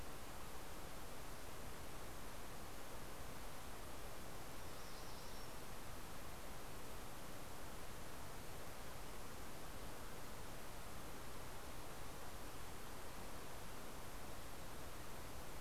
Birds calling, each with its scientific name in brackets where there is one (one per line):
MacGillivray's Warbler (Geothlypis tolmiei)